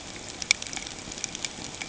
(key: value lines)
label: ambient
recorder: HydroMoth